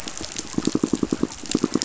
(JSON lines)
{"label": "biophony, pulse", "recorder": "SoundTrap 500"}